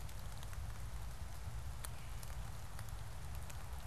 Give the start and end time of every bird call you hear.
0.0s-2.5s: Veery (Catharus fuscescens)

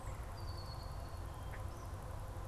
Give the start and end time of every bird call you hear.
0.2s-1.2s: Red-winged Blackbird (Agelaius phoeniceus)

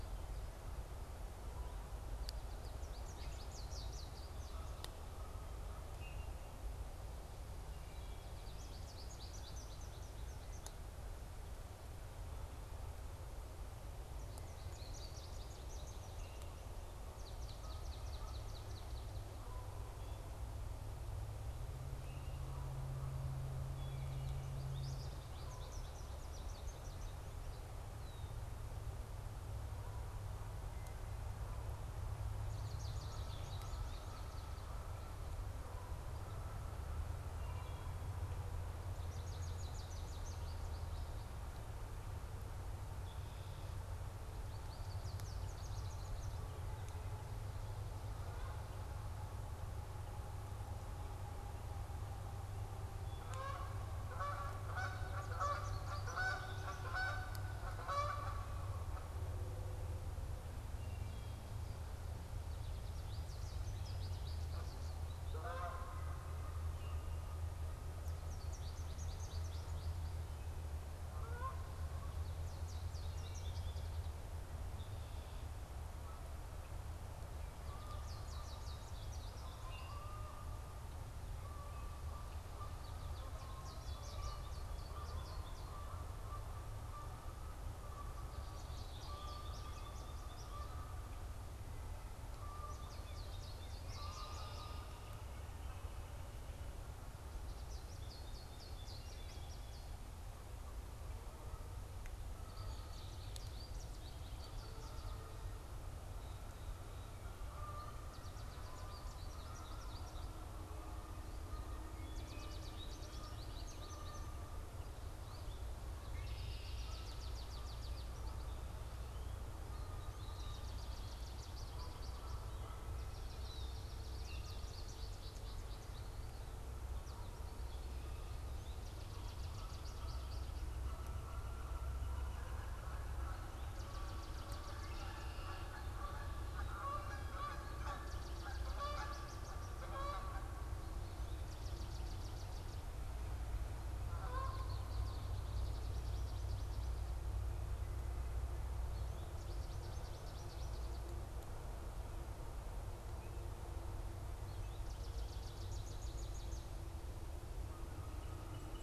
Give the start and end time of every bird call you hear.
2.1s-4.9s: American Goldfinch (Spinus tristis)
5.9s-6.3s: Common Grackle (Quiscalus quiscula)
8.1s-11.2s: American Goldfinch (Spinus tristis)
14.3s-16.6s: American Goldfinch (Spinus tristis)
16.8s-19.5s: Swamp Sparrow (Melospiza georgiana)
23.6s-24.5s: Wood Thrush (Hylocichla mustelina)
23.9s-27.6s: American Goldfinch (Spinus tristis)
27.9s-28.6s: Red-winged Blackbird (Agelaius phoeniceus)
32.4s-35.0s: American Goldfinch (Spinus tristis)
37.3s-38.1s: Wood Thrush (Hylocichla mustelina)
38.7s-41.3s: American Goldfinch (Spinus tristis)
44.5s-46.7s: American Goldfinch (Spinus tristis)
52.9s-59.1s: Canada Goose (Branta canadensis)
54.7s-57.0s: American Goldfinch (Spinus tristis)
60.7s-61.5s: Wood Thrush (Hylocichla mustelina)
62.4s-65.8s: American Goldfinch (Spinus tristis)
64.1s-66.3s: Canada Goose (Branta canadensis)
68.0s-70.1s: American Goldfinch (Spinus tristis)
71.0s-113.5s: Canada Goose (Branta canadensis)
72.0s-74.3s: American Goldfinch (Spinus tristis)
77.7s-80.2s: American Goldfinch (Spinus tristis)
82.6s-85.8s: American Goldfinch (Spinus tristis)
88.3s-90.6s: American Goldfinch (Spinus tristis)
92.5s-94.9s: American Goldfinch (Spinus tristis)
93.8s-95.1s: Red-winged Blackbird (Agelaius phoeniceus)
97.3s-100.0s: American Goldfinch (Spinus tristis)
102.4s-105.3s: American Goldfinch (Spinus tristis)
107.6s-110.3s: American Goldfinch (Spinus tristis)
111.7s-114.2s: American Goldfinch (Spinus tristis)
114.5s-158.8s: Canada Goose (Branta canadensis)
115.8s-118.6s: American Goldfinch (Spinus tristis)
120.1s-122.4s: American Goldfinch (Spinus tristis)
122.9s-125.0s: Swamp Sparrow (Melospiza georgiana)
124.0s-126.1s: American Goldfinch (Spinus tristis)
126.6s-131.1s: American Goldfinch (Spinus tristis)
133.3s-136.1s: American Goldfinch (Spinus tristis)
134.5s-135.7s: Red-winged Blackbird (Agelaius phoeniceus)
136.9s-139.8s: American Goldfinch (Spinus tristis)
140.9s-142.9s: American Goldfinch (Spinus tristis)
144.0s-145.5s: Red-winged Blackbird (Agelaius phoeniceus)
145.3s-147.5s: American Goldfinch (Spinus tristis)
148.8s-151.1s: American Goldfinch (Spinus tristis)
154.1s-157.1s: American Goldfinch (Spinus tristis)
157.9s-158.8s: Song Sparrow (Melospiza melodia)

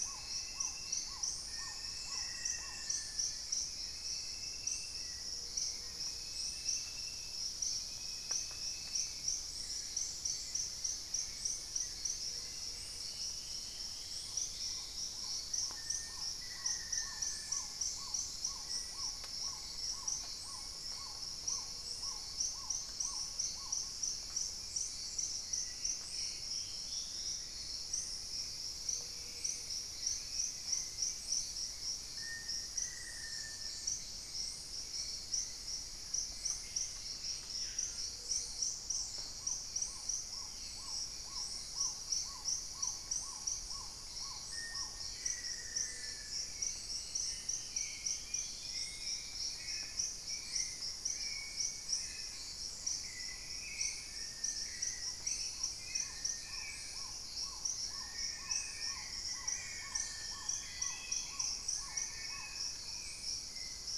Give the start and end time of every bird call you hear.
0.0s-3.2s: Black-tailed Trogon (Trogon melanurus)
0.0s-64.0s: Hauxwell's Thrush (Turdus hauxwelli)
0.0s-64.0s: Paradise Tanager (Tangara chilensis)
1.4s-7.3s: Black-faced Antthrush (Formicarius analis)
5.2s-6.3s: Gray-fronted Dove (Leptotila rufaxilla)
8.1s-8.9s: unidentified bird
11.8s-13.0s: unidentified bird
12.0s-15.6s: Dusky-throated Antshrike (Thamnomanes ardesiacus)
12.2s-13.3s: Gray-fronted Dove (Leptotila rufaxilla)
14.1s-24.0s: Black-tailed Trogon (Trogon melanurus)
15.6s-20.0s: Black-faced Antthrush (Formicarius analis)
20.1s-21.5s: unidentified bird
21.4s-22.3s: Gray-fronted Dove (Leptotila rufaxilla)
25.5s-28.1s: Dusky-throated Antshrike (Thamnomanes ardesiacus)
27.1s-28.4s: unidentified bird
28.8s-29.9s: Gray-fronted Dove (Leptotila rufaxilla)
32.0s-34.2s: Black-faced Antthrush (Formicarius analis)
36.2s-38.1s: Screaming Piha (Lipaugus vociferans)
38.0s-39.1s: Gray-fronted Dove (Leptotila rufaxilla)
38.8s-45.2s: Black-tailed Trogon (Trogon melanurus)
40.2s-41.4s: unidentified bird
44.4s-46.8s: Black-faced Antthrush (Formicarius analis)
45.3s-46.4s: Gray-fronted Dove (Leptotila rufaxilla)
46.2s-49.9s: Dusky-throated Antshrike (Thamnomanes ardesiacus)
50.0s-64.0s: Black-tailed Trogon (Trogon melanurus)
53.9s-63.1s: Long-billed Woodcreeper (Nasica longirostris)
58.5s-60.8s: Black-faced Antthrush (Formicarius analis)
60.6s-64.0s: Spot-winged Antshrike (Pygiptila stellaris)

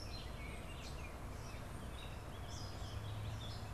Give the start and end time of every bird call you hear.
0.0s-1.3s: Baltimore Oriole (Icterus galbula)
0.0s-3.7s: Red-winged Blackbird (Agelaius phoeniceus)
1.8s-3.7s: Warbling Vireo (Vireo gilvus)

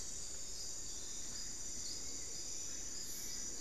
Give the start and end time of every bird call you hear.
0.0s-2.8s: Hauxwell's Thrush (Turdus hauxwelli)
2.6s-3.6s: Black-fronted Nunbird (Monasa nigrifrons)

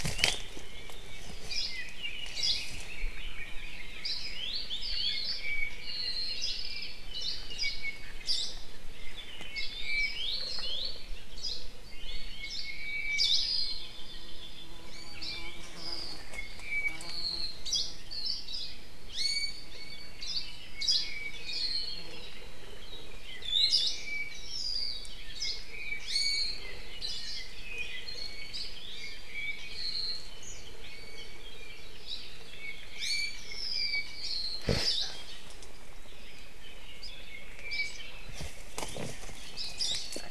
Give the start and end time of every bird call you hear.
1.4s-1.8s: Hawaii Creeper (Loxops mana)
1.4s-4.2s: Red-billed Leiothrix (Leiothrix lutea)
2.3s-2.8s: Hawaii Creeper (Loxops mana)
4.0s-4.4s: Hawaii Creeper (Loxops mana)
5.0s-6.4s: Apapane (Himatione sanguinea)
5.1s-5.6s: Hawaii Akepa (Loxops coccineus)
6.4s-6.7s: Hawaii Creeper (Loxops mana)
7.1s-7.8s: Hawaii Creeper (Loxops mana)
8.2s-8.6s: Hawaii Akepa (Loxops coccineus)
9.4s-10.9s: Apapane (Himatione sanguinea)
11.3s-11.7s: Hawaii Creeper (Loxops mana)
12.3s-17.6s: Apapane (Himatione sanguinea)
12.4s-12.8s: Hawaii Creeper (Loxops mana)
13.1s-13.5s: Hawaii Akepa (Loxops coccineus)
14.8s-15.3s: Iiwi (Drepanis coccinea)
17.6s-18.0s: Hawaii Creeper (Loxops mana)
18.1s-18.5s: Hawaii Akepa (Loxops coccineus)
18.4s-18.9s: Hawaii Creeper (Loxops mana)
19.1s-20.2s: Iiwi (Drepanis coccinea)
20.2s-21.3s: Hawaii Creeper (Loxops mana)
20.7s-22.1s: Apapane (Himatione sanguinea)
23.2s-25.2s: Apapane (Himatione sanguinea)
23.4s-23.9s: Iiwi (Drepanis coccinea)
23.7s-24.2s: Hawaii Akepa (Loxops coccineus)
25.3s-25.7s: Hawaii Creeper (Loxops mana)
26.0s-26.7s: Iiwi (Drepanis coccinea)
27.0s-27.3s: Hawaii Creeper (Loxops mana)
28.0s-29.4s: Iiwi (Drepanis coccinea)
28.3s-28.9s: Omao (Myadestes obscurus)
28.5s-28.8s: Hawaii Creeper (Loxops mana)
28.9s-30.4s: Apapane (Himatione sanguinea)
30.8s-31.4s: Iiwi (Drepanis coccinea)
32.0s-32.3s: Hawaii Creeper (Loxops mana)
32.5s-34.7s: Apapane (Himatione sanguinea)
32.9s-33.5s: Iiwi (Drepanis coccinea)
34.8s-35.2s: Hawaii Akepa (Loxops coccineus)
37.7s-38.1s: Hawaii Creeper (Loxops mana)
39.8s-40.1s: Hawaii Akepa (Loxops coccineus)

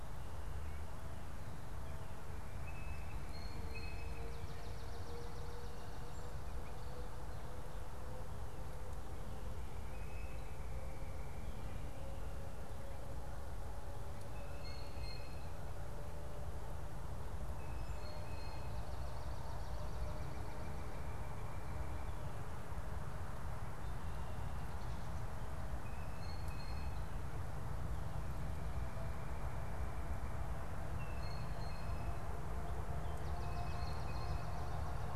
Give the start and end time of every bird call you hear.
2.6s-4.3s: Blue Jay (Cyanocitta cristata)
9.6s-18.9s: Blue Jay (Cyanocitta cristata)
18.7s-20.2s: Swamp Sparrow (Melospiza georgiana)
19.9s-22.2s: Northern Cardinal (Cardinalis cardinalis)
25.5s-34.8s: Blue Jay (Cyanocitta cristata)
28.3s-30.7s: Northern Cardinal (Cardinalis cardinalis)

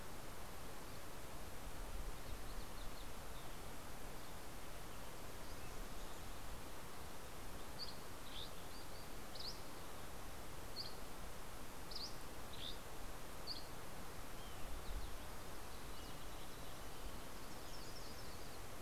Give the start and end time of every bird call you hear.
7.3s-14.1s: Dusky Flycatcher (Empidonax oberholseri)
16.9s-18.7s: Yellow-rumped Warbler (Setophaga coronata)

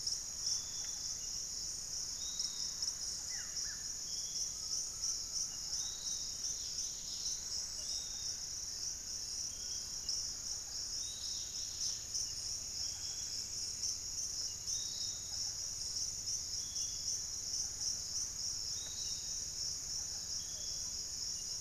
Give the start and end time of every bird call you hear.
0.0s-1.2s: Thrush-like Wren (Campylorhynchus turdinus)
0.0s-21.6s: Piratic Flycatcher (Legatus leucophaius)
0.0s-21.6s: unidentified bird
3.2s-4.0s: Buff-throated Woodcreeper (Xiphorhynchus guttatus)
4.5s-6.2s: Undulated Tinamou (Crypturellus undulatus)
6.3s-12.5s: Dusky-capped Greenlet (Pachysylvia hypoxantha)
6.7s-11.0s: Fasciated Antshrike (Cymbilaimus lineatus)

